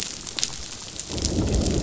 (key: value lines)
label: biophony, growl
recorder: SoundTrap 500